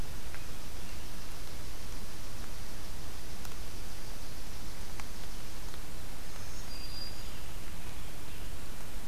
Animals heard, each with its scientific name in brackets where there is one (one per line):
Black-throated Green Warbler (Setophaga virens)
American Robin (Turdus migratorius)